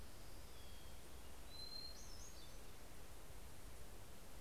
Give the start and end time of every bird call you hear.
[0.68, 3.28] Hermit Thrush (Catharus guttatus)

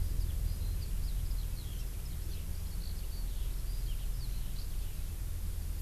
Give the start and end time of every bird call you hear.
[0.00, 4.70] Eurasian Skylark (Alauda arvensis)

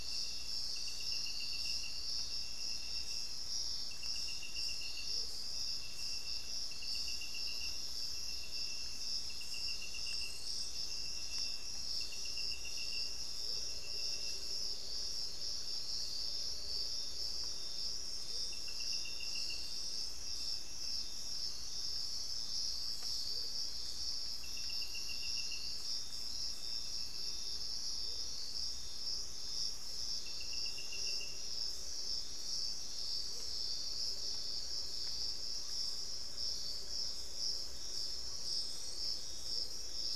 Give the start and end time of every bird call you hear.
[5.04, 5.44] Amazonian Motmot (Momotus momota)
[13.24, 39.14] Amazonian Motmot (Momotus momota)
[35.44, 36.14] Buff-throated Woodcreeper (Xiphorhynchus guttatus)

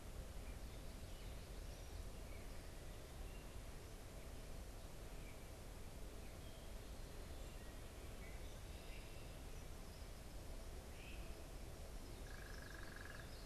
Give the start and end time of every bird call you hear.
[4.95, 9.65] Gray Catbird (Dumetella carolinensis)
[10.85, 11.25] Great Crested Flycatcher (Myiarchus crinitus)
[12.05, 13.45] unidentified bird

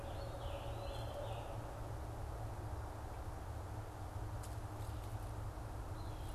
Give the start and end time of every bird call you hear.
[0.00, 1.28] Eastern Wood-Pewee (Contopus virens)
[0.00, 1.68] Scarlet Tanager (Piranga olivacea)
[0.00, 6.35] Red-eyed Vireo (Vireo olivaceus)

